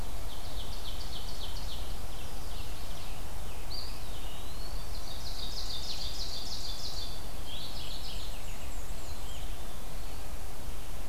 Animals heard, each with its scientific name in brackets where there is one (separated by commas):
Black-and-white Warbler (Mniotilta varia), Eastern Wood-Pewee (Contopus virens), Mourning Warbler (Geothlypis philadelphia), Ovenbird (Seiurus aurocapilla), Chestnut-sided Warbler (Setophaga pensylvanica)